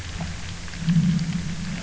{"label": "anthrophony, boat engine", "recorder": "SoundTrap 300"}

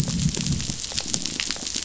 {"label": "biophony, growl", "recorder": "SoundTrap 500"}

